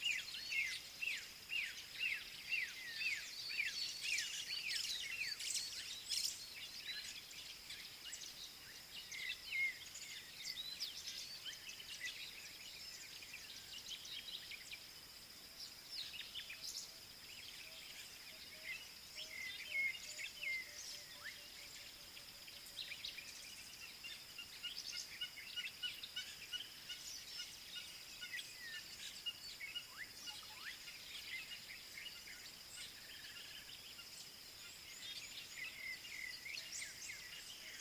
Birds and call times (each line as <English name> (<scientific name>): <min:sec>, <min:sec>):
Black-backed Puffback (Dryoscopus cubla): 0:01.5, 0:03.6
African Bare-eyed Thrush (Turdus tephronotus): 0:09.2, 0:35.8